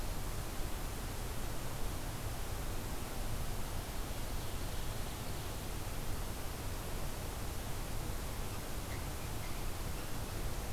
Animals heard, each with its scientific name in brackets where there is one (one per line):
Ovenbird (Seiurus aurocapilla)